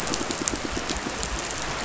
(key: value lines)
label: biophony
recorder: SoundTrap 500